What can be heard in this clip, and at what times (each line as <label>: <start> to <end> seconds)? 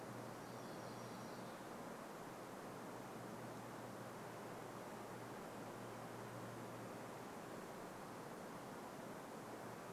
MacGillivray's Warbler song: 0 to 2 seconds